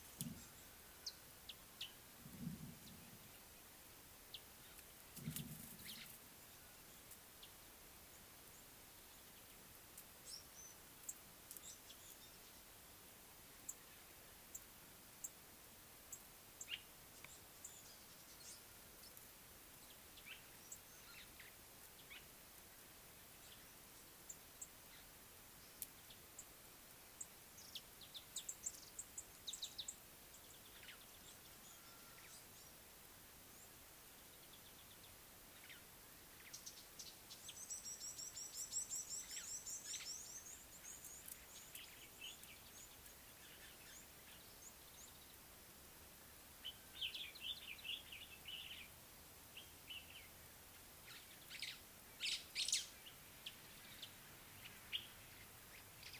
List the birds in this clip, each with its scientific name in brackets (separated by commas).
Common Bulbul (Pycnonotus barbatus), White-browed Sparrow-Weaver (Plocepasser mahali), Red-cheeked Cordonbleu (Uraeginthus bengalus), Mariqua Sunbird (Cinnyris mariquensis)